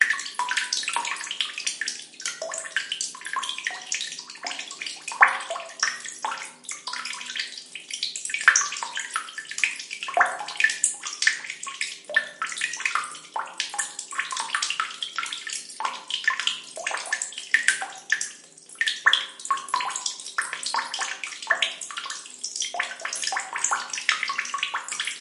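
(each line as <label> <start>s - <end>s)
Water dripping continuously. 0.0s - 25.2s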